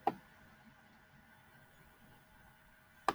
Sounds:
Laughter